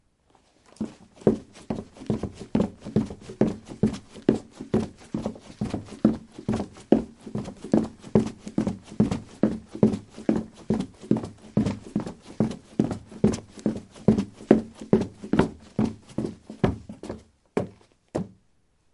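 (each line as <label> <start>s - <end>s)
Footsteps on wooden stairs. 0.0s - 18.9s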